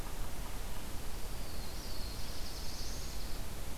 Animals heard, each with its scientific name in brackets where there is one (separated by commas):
Dark-eyed Junco (Junco hyemalis), Black-throated Blue Warbler (Setophaga caerulescens)